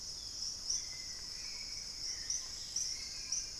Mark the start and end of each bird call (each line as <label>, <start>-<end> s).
Long-winged Antwren (Myrmotherula longipennis), 0.0-1.3 s
Dusky-capped Greenlet (Pachysylvia hypoxantha), 0.0-3.6 s
Hauxwell's Thrush (Turdus hauxwelli), 0.0-3.6 s
Thrush-like Wren (Campylorhynchus turdinus), 0.0-3.6 s
Long-billed Woodcreeper (Nasica longirostris), 2.8-3.6 s